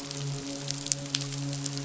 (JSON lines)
{"label": "biophony, midshipman", "recorder": "SoundTrap 500"}